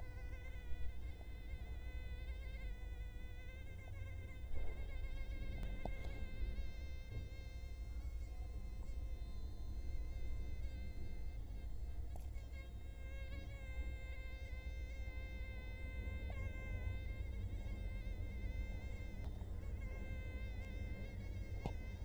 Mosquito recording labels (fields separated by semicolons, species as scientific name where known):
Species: Culex quinquefasciatus; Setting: cup